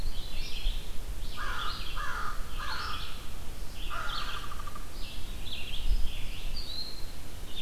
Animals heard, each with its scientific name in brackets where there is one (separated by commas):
Red-eyed Vireo (Vireo olivaceus), Downy Woodpecker (Dryobates pubescens), American Crow (Corvus brachyrhynchos), Eastern Wood-Pewee (Contopus virens)